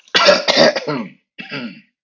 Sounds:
Throat clearing